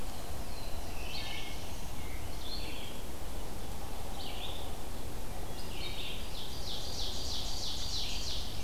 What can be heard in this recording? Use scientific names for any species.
Vireo olivaceus, Setophaga caerulescens, Seiurus aurocapilla, Setophaga pensylvanica